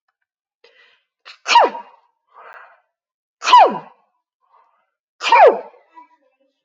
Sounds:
Sneeze